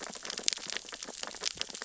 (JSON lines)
{"label": "biophony, sea urchins (Echinidae)", "recorder": "SoundTrap 600 or HydroMoth"}